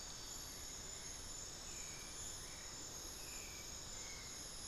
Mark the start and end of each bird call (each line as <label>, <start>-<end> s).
Hauxwell's Thrush (Turdus hauxwelli), 0.0-4.7 s
Black-fronted Nunbird (Monasa nigrifrons), 0.4-1.4 s